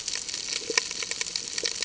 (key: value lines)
label: ambient
recorder: HydroMoth